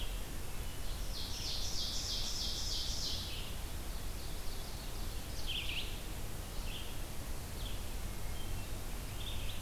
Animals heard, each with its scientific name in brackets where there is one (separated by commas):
Ovenbird (Seiurus aurocapilla), Hermit Thrush (Catharus guttatus), Red-eyed Vireo (Vireo olivaceus)